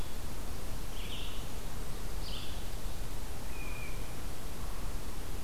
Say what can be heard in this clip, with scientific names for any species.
Vireo olivaceus